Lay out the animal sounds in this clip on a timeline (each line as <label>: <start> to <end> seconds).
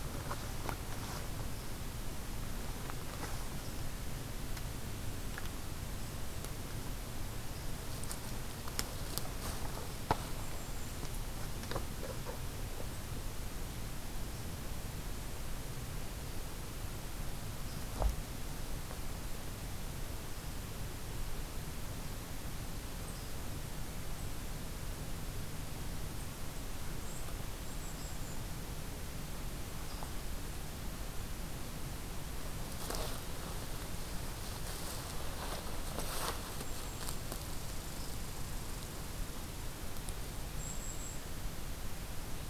Golden-crowned Kinglet (Regulus satrapa): 10.2 to 11.2 seconds
Golden-crowned Kinglet (Regulus satrapa): 27.5 to 28.7 seconds
Golden-crowned Kinglet (Regulus satrapa): 36.4 to 37.3 seconds
Red Squirrel (Tamiasciurus hudsonicus): 37.2 to 39.6 seconds
Golden-crowned Kinglet (Regulus satrapa): 40.3 to 41.3 seconds